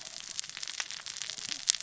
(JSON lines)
{"label": "biophony, cascading saw", "recorder": "SoundTrap 600 or HydroMoth"}